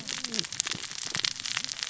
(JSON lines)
{"label": "biophony, cascading saw", "recorder": "SoundTrap 600 or HydroMoth"}